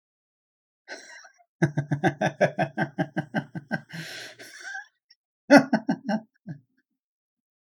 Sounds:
Laughter